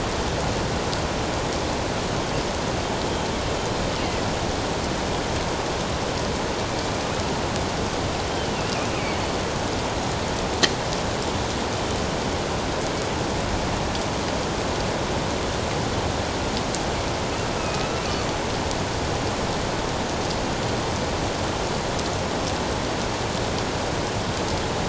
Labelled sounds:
8.3	9.4	killer whale, northern resident, G clan, 2.9 to 4.6 kHz
17.6	18.0	killer whale, northern resident, G clan, 2.4 to 2.7 kHz

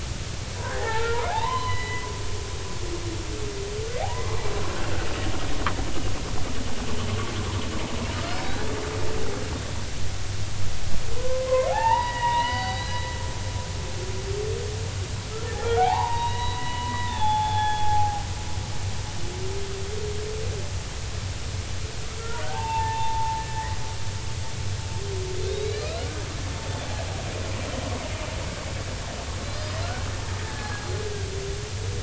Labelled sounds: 0.6	2.1	humpback whale, 0.80 to 4.1 kHz
4.0	4.4	humpback whale, 0.80 to 1.2 kHz
11.2	13.0	humpback whale, 0.80 to 4.7 kHz
15.6	18.2	humpback whale, 0.80 to 4.0 kHz
22.2	23.7	humpback whale, 0.80 to 3.7 kHz
25.4	26.2	humpback whale, 1.2 to 4.4 kHz
29.4	29.8	humpback whale, 3.9 to 5.1 kHz
30.4	30.9	humpback whale, 1.6 to 1.8 kHz

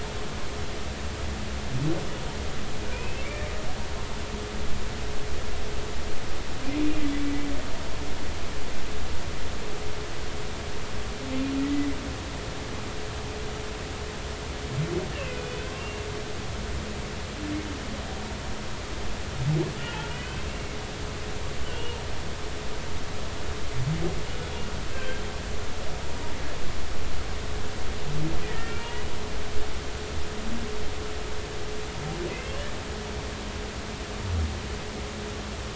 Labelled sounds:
2.9	3.3	humpback whale, 2.3 to 2.8 kHz
4.1	4.5	humpback whale, 2.1 to 2.4 kHz
11.6	11.9	humpback whale, 1.9 to 2.0 kHz
15.1	16.0	humpback whale, 2.4 to 2.9 kHz
20.1	20.4	humpback whale, 2.4 to 3.2 kHz
21.6	22.0	humpback whale, 2.7 to 3.1 kHz
24.9	25.2	humpback whale, 1.5 to 1.6 kHz
28.4	29.0	humpback whale, 1.3 to 2.9 kHz
32.3	32.6	humpback whale, 2.0 to 2.8 kHz

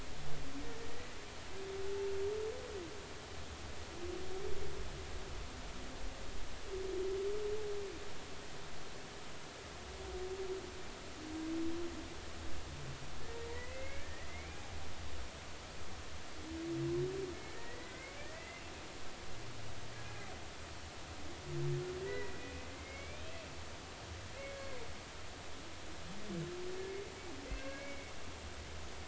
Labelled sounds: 13.5	14.6	humpback whale, 1.6 to 2.5 kHz
17.3	18.7	humpback whale, 1.7 to 2.8 kHz
19.9	20.3	humpback whale, 1.6 to 1.7 kHz
22.0	23.3	humpback whale, 1.9 to 2.6 kHz
24.1	24.8	humpback whale, 1.6 to 3.9 kHz
27.5	28.1	humpback whale, 1.5 to 2.8 kHz

